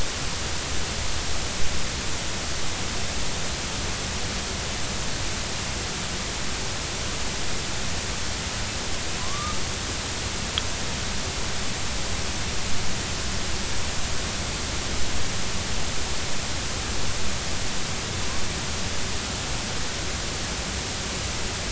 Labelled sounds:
9.2	9.6	killer whale, northern resident, A clan, AB subclan, 0.96 to 1.3 kHz

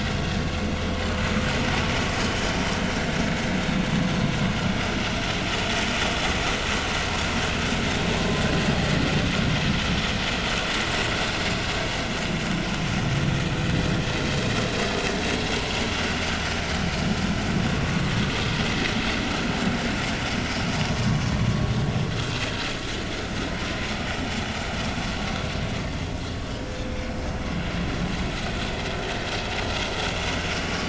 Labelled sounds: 18.2	18.5	vessel noise, 1.1 to 1.3 kHz
30.6	30.8	vessel noise, 1.1 to 1.2 kHz

